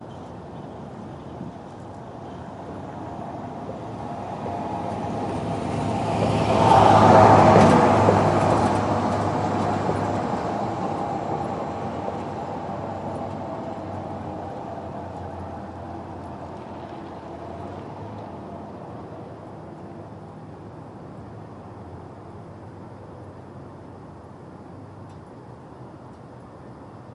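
Traffic sounds. 0:00.0 - 0:27.1
A train is passing by. 0:04.6 - 0:15.3

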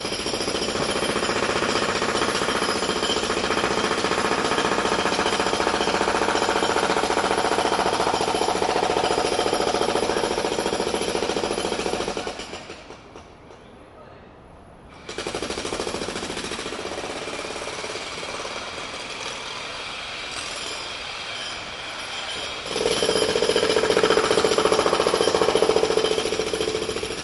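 A jackhammer strikes repeatedly with a metallic resonance. 0:00.0 - 0:13.6
A man yells in the distance. 0:12.0 - 0:13.1
Atmospheric white noise. 0:13.5 - 0:15.1
A man yelling from a distance. 0:13.8 - 0:14.5
A jackhammer strikes at a distance with an inconsistent rhythm. 0:15.1 - 0:22.6
A jackhammer strikes repeatedly with a metallic resonance. 0:22.7 - 0:27.2

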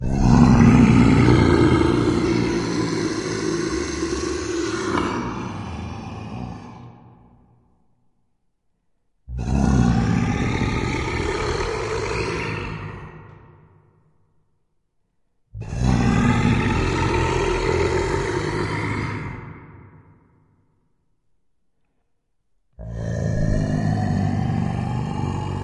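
A lion roars, and the sound echoes before quieting down. 0:00.0 - 0:07.2
A lion roars, and the sound echoes before quieting down. 0:09.3 - 0:13.7
A lion roars, and the sound echoes before quieting down. 0:15.5 - 0:19.8
A lion's roar echoing. 0:22.7 - 0:25.6

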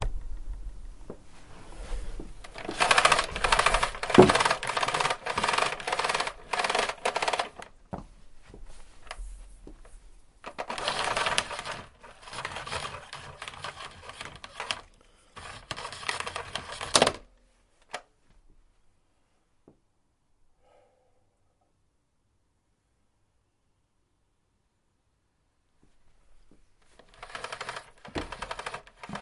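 Footsteps entering a room. 0:01.1 - 0:01.3
Footsteps inside a room. 0:02.1 - 0:02.8
Rattling sound of a vacuum cleaner power cable being pulled and unwound repeatedly. 0:02.7 - 0:07.6
Footsteps of a person moving and walking inside a room. 0:07.5 - 0:10.4
Dragging sound of a vacuum cleaner power cable being collected. 0:10.4 - 0:17.3
Someone softly exhales indoors. 0:20.6 - 0:21.4
Rattling sound of a vacuum cleaner power cable being pulled and unwound repeatedly. 0:27.1 - 0:29.2

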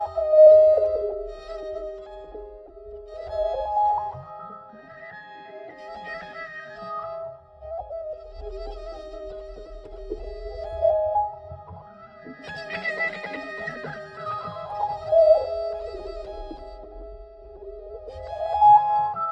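A violin is being played with ebbing and flowing tones. 0:00.0 - 0:19.3

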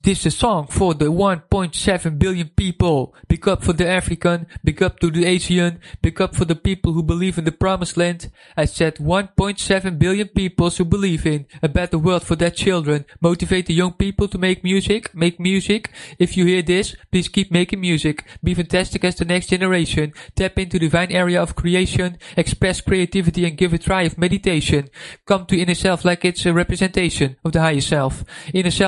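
A man is speaking clearly. 0:00.0 - 0:28.9

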